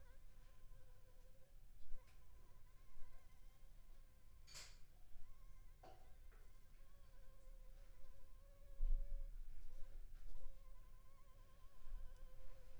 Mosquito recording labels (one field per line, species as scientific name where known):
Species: Anopheles funestus s.s.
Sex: female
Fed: unfed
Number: one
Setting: cup